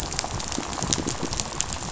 {"label": "biophony, rattle", "recorder": "SoundTrap 500"}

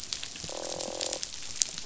{"label": "biophony, croak", "recorder": "SoundTrap 500"}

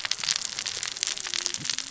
{"label": "biophony, cascading saw", "recorder": "SoundTrap 600 or HydroMoth"}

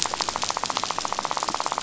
{"label": "biophony, rattle", "recorder": "SoundTrap 500"}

